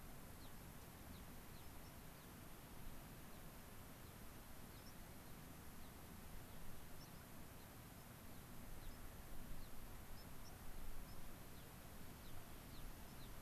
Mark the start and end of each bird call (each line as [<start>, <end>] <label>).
[0.31, 0.51] Gray-crowned Rosy-Finch (Leucosticte tephrocotis)
[1.11, 1.21] Gray-crowned Rosy-Finch (Leucosticte tephrocotis)
[1.51, 1.61] Gray-crowned Rosy-Finch (Leucosticte tephrocotis)
[1.81, 1.91] White-crowned Sparrow (Zonotrichia leucophrys)
[2.11, 2.31] Gray-crowned Rosy-Finch (Leucosticte tephrocotis)
[3.31, 3.41] Gray-crowned Rosy-Finch (Leucosticte tephrocotis)
[4.01, 4.11] Gray-crowned Rosy-Finch (Leucosticte tephrocotis)
[4.71, 4.81] Gray-crowned Rosy-Finch (Leucosticte tephrocotis)
[4.81, 4.91] White-crowned Sparrow (Zonotrichia leucophrys)
[5.21, 5.41] Gray-crowned Rosy-Finch (Leucosticte tephrocotis)
[5.71, 5.91] Gray-crowned Rosy-Finch (Leucosticte tephrocotis)
[7.01, 7.11] White-crowned Sparrow (Zonotrichia leucophrys)
[7.01, 7.21] Gray-crowned Rosy-Finch (Leucosticte tephrocotis)
[7.51, 7.71] Gray-crowned Rosy-Finch (Leucosticte tephrocotis)
[8.31, 8.41] Gray-crowned Rosy-Finch (Leucosticte tephrocotis)
[8.71, 8.91] Gray-crowned Rosy-Finch (Leucosticte tephrocotis)
[8.81, 9.01] White-crowned Sparrow (Zonotrichia leucophrys)
[9.61, 9.71] Gray-crowned Rosy-Finch (Leucosticte tephrocotis)
[10.11, 10.51] White-crowned Sparrow (Zonotrichia leucophrys)
[11.01, 11.21] White-crowned Sparrow (Zonotrichia leucophrys)
[11.51, 11.71] Gray-crowned Rosy-Finch (Leucosticte tephrocotis)
[12.11, 12.31] Gray-crowned Rosy-Finch (Leucosticte tephrocotis)
[12.71, 12.81] Gray-crowned Rosy-Finch (Leucosticte tephrocotis)
[13.21, 13.31] Gray-crowned Rosy-Finch (Leucosticte tephrocotis)